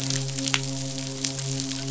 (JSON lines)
{"label": "biophony, midshipman", "recorder": "SoundTrap 500"}